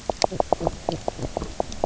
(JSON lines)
{"label": "biophony, knock croak", "recorder": "SoundTrap 300"}